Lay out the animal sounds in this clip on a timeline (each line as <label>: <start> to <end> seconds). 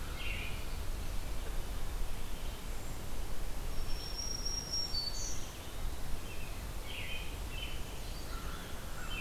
American Robin (Turdus migratorius): 0.0 to 0.7 seconds
Red-eyed Vireo (Vireo olivaceus): 0.0 to 9.2 seconds
Black-throated Green Warbler (Setophaga virens): 3.5 to 5.6 seconds
Eastern Wood-Pewee (Contopus virens): 4.9 to 6.1 seconds
American Robin (Turdus migratorius): 6.1 to 8.3 seconds
American Crow (Corvus brachyrhynchos): 8.2 to 9.2 seconds